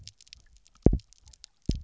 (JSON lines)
{"label": "biophony, double pulse", "recorder": "SoundTrap 300"}